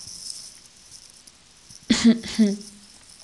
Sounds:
Throat clearing